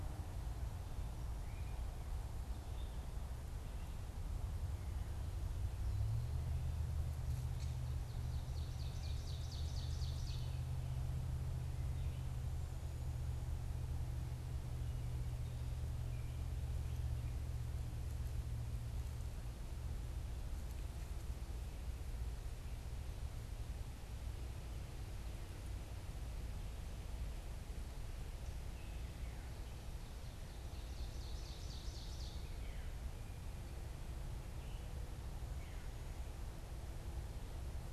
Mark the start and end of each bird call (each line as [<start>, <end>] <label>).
[0.94, 3.14] Gray Catbird (Dumetella carolinensis)
[7.44, 7.94] Gray Catbird (Dumetella carolinensis)
[7.94, 10.94] Ovenbird (Seiurus aurocapilla)
[28.64, 35.94] Veery (Catharus fuscescens)
[29.64, 32.44] Ovenbird (Seiurus aurocapilla)